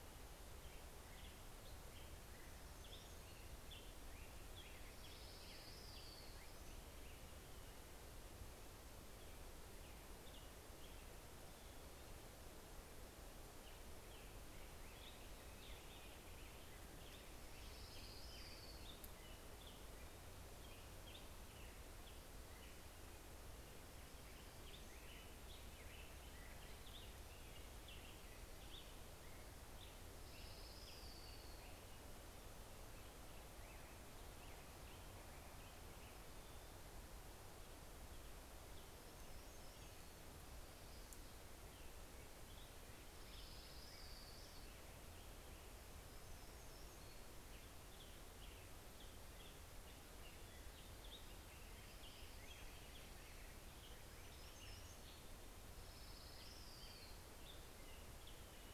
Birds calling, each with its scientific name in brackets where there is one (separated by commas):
Hermit Warbler (Setophaga occidentalis), Black-headed Grosbeak (Pheucticus melanocephalus), Orange-crowned Warbler (Leiothlypis celata)